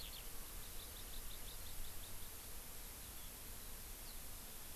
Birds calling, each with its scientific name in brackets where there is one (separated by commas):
Hawaii Amakihi (Chlorodrepanis virens), Eurasian Skylark (Alauda arvensis)